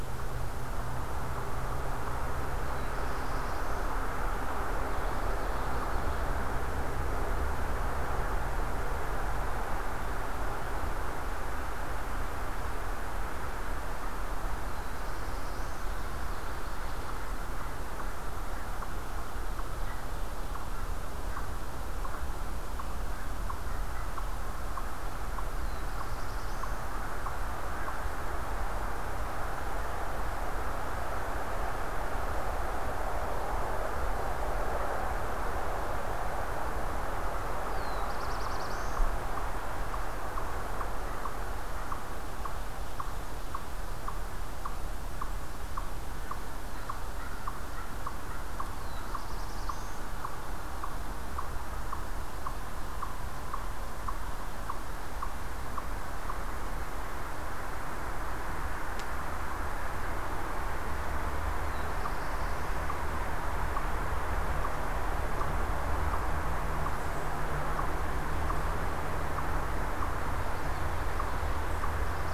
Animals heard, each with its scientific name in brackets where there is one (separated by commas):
Black-throated Blue Warbler (Setophaga caerulescens)